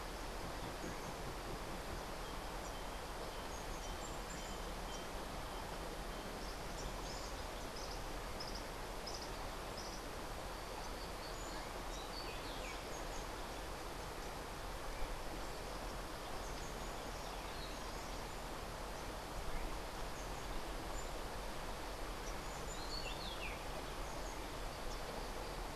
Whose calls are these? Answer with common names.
Cabanis's Wren, Rufous-breasted Wren